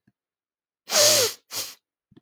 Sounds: Sniff